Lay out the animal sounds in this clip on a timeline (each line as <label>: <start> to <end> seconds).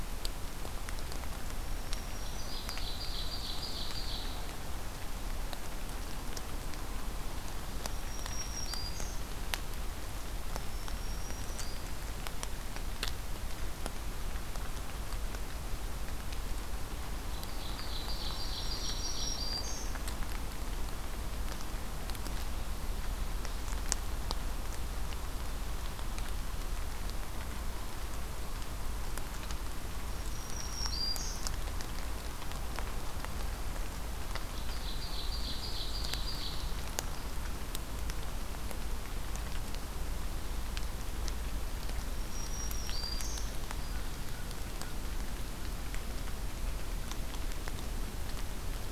Black-throated Green Warbler (Setophaga virens): 1.5 to 2.9 seconds
Ovenbird (Seiurus aurocapilla): 2.2 to 4.5 seconds
Black-throated Green Warbler (Setophaga virens): 8.0 to 9.2 seconds
Black-throated Green Warbler (Setophaga virens): 10.5 to 11.8 seconds
Ovenbird (Seiurus aurocapilla): 17.3 to 19.5 seconds
Black-throated Green Warbler (Setophaga virens): 18.2 to 19.9 seconds
Black-throated Green Warbler (Setophaga virens): 30.1 to 31.4 seconds
Ovenbird (Seiurus aurocapilla): 34.4 to 36.6 seconds
Black-throated Green Warbler (Setophaga virens): 42.1 to 43.5 seconds